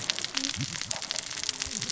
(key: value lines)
label: biophony, cascading saw
recorder: SoundTrap 600 or HydroMoth